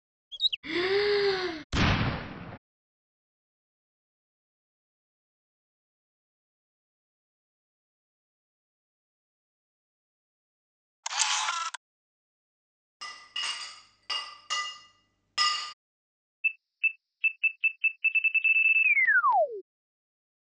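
First, at the start, you can hear a bird. At the start, breathing is audible. Next, about 2 seconds in, there is an explosion. After that, about 11 seconds in, the sound of a camera is heard. Following that, about 13 seconds in, the sound of glass is audible. Finally, about 16 seconds in, there is an alarm.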